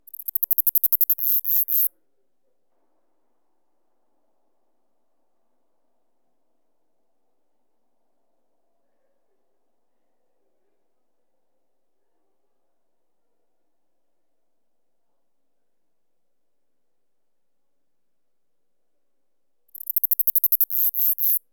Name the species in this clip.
Neocallicrania selligera